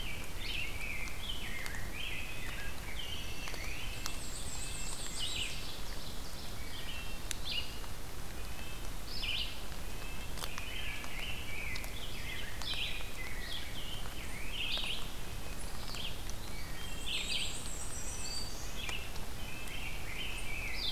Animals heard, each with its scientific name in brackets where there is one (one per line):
Wood Thrush (Hylocichla mustelina)
Dark-eyed Junco (Junco hyemalis)
Ovenbird (Seiurus aurocapilla)
Black-throated Green Warbler (Setophaga virens)
Red-eyed Vireo (Vireo olivaceus)
Red-breasted Nuthatch (Sitta canadensis)
Black-and-white Warbler (Mniotilta varia)
Rose-breasted Grosbeak (Pheucticus ludovicianus)